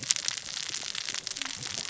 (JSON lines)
{"label": "biophony, cascading saw", "recorder": "SoundTrap 600 or HydroMoth"}